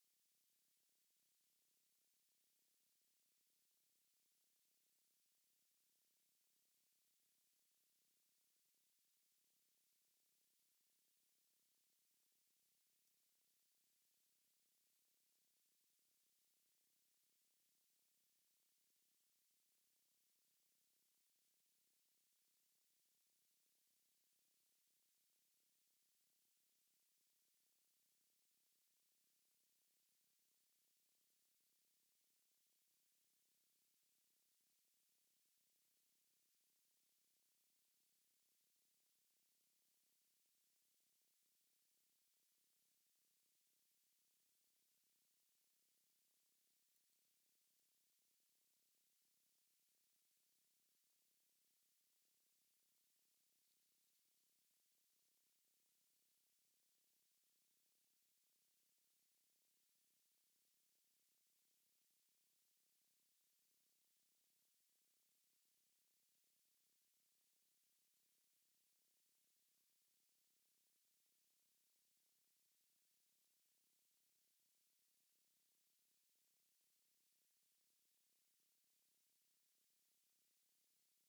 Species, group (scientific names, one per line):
Eugryllodes pipiens
Orthoptera